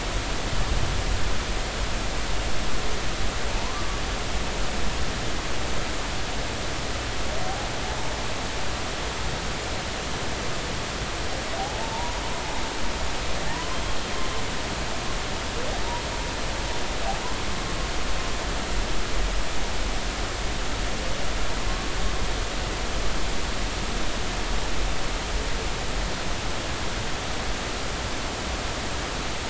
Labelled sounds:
3.5	3.8	humpback whale, 0.83 to 1.1 kHz
11.6	12.2	humpback whale, 0.80 to 1.1 kHz
13.5	13.8	humpback whale, 0.86 to 1.1 kHz

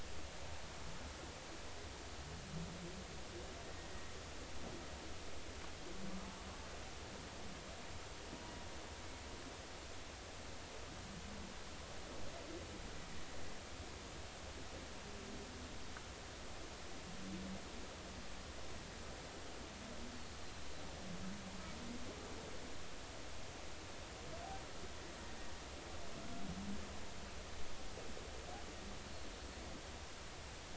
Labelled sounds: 29.1	29.3	killer whale, Bigg's (transient), 4.2 to 4.4 kHz

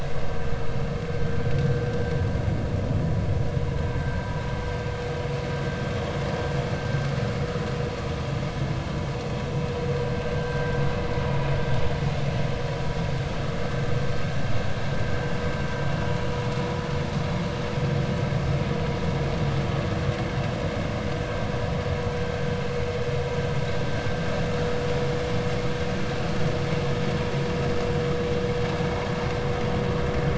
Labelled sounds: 10.3	10.7	vessel noise, 1.5 to 1.6 kHz

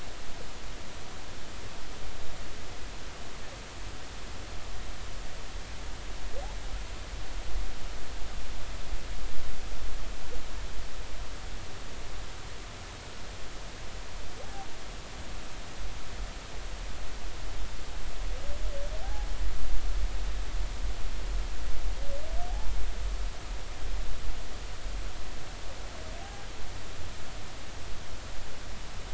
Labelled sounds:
19.0	19.3	humpback whale, 0.80 to 0.90 kHz
26.2	26.4	humpback whale, 0.80 to 0.86 kHz

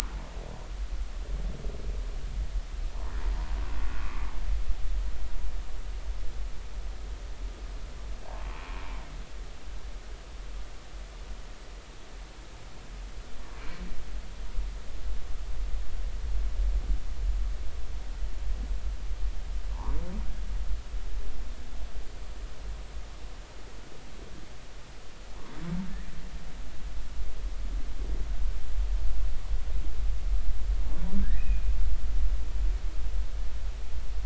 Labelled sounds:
31.2	31.7	humpback whale, 1.5 to 2.6 kHz

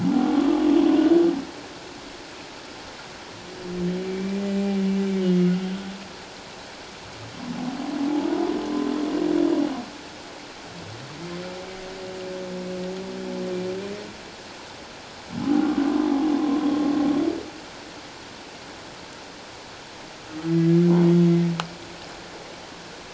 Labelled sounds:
0.0	0.5	humpback whale, 0.78 to 1.2 kHz
4.0	4.4	humpback whale, 2.2 to 2.4 kHz
5.2	5.5	humpback whale, 2.8 to 3.0 kHz

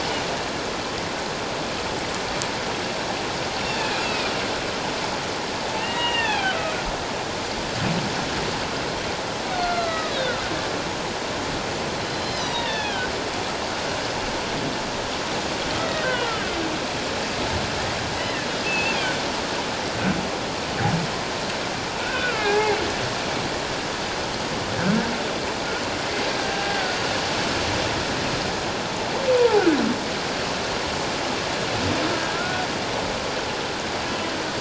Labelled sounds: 3.8	4.3	humpback whale, 2.3 to 2.8 kHz
5.8	6.6	humpback whale, 0.78 to 3.7 kHz
9.5	10.4	humpback whale, 1.2 to 4.2 kHz
12.1	13.1	humpback whale, 0.84 to 5.2 kHz
15.8	16.1	humpback whale, 1.8 to 2.0 kHz
18.1	19.0	humpback whale, 1.7 to 2.8 kHz
22.0	22.8	humpback whale, 0.78 to 2.8 kHz
26.4	27.0	humpback whale, 1.4 to 1.7 kHz
29.4	29.7	humpback whale, 0.78 to 1.0 kHz
32.3	32.7	humpback whale, 1.3 to 1.5 kHz

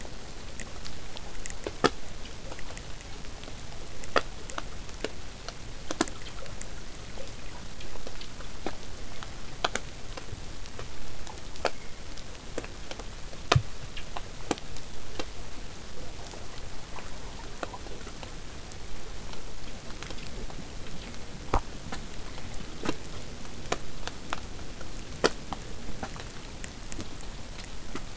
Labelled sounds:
20.8	25.8	vessel noise, 0 to 8.0 kHz

